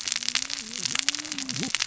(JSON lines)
{"label": "biophony, cascading saw", "recorder": "SoundTrap 600 or HydroMoth"}